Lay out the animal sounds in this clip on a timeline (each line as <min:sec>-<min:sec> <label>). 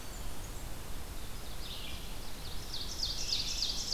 0:00.0-0:00.7 Blackburnian Warbler (Setophaga fusca)
0:00.0-0:03.9 Red-eyed Vireo (Vireo olivaceus)
0:02.3-0:03.9 Ovenbird (Seiurus aurocapilla)